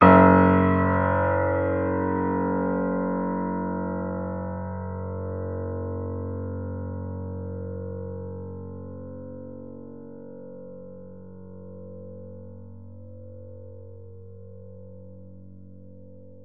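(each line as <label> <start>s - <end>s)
A piano key is played loudly and then gradually fades away. 0.0s - 16.4s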